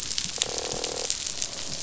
{"label": "biophony, croak", "recorder": "SoundTrap 500"}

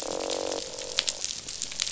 {"label": "biophony, croak", "recorder": "SoundTrap 500"}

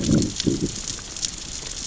{"label": "biophony, growl", "recorder": "SoundTrap 600 or HydroMoth"}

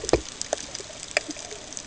{"label": "ambient", "recorder": "HydroMoth"}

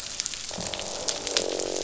{"label": "biophony, croak", "recorder": "SoundTrap 500"}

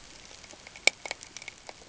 {"label": "ambient", "recorder": "HydroMoth"}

